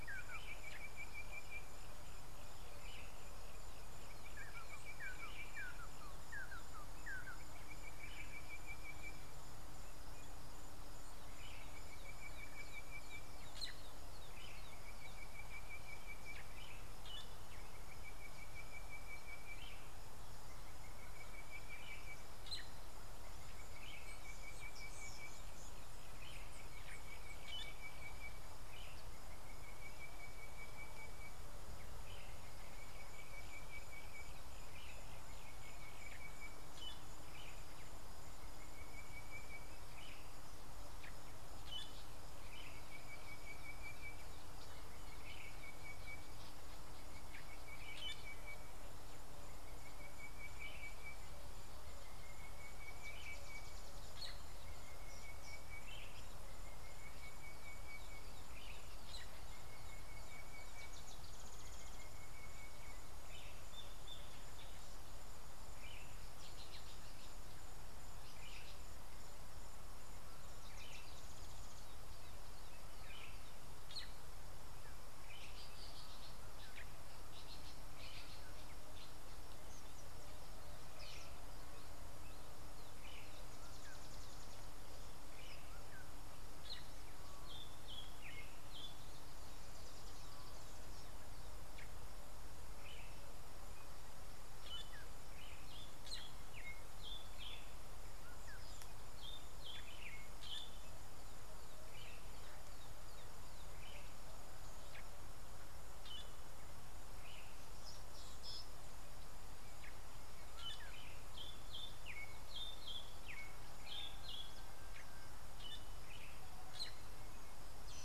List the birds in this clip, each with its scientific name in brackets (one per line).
Fork-tailed Drongo (Dicrurus adsimilis)
Sulphur-breasted Bushshrike (Telophorus sulfureopectus)
Speckled Mousebird (Colius striatus)
Red-and-yellow Barbet (Trachyphonus erythrocephalus)